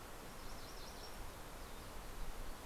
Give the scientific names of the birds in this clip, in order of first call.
Geothlypis tolmiei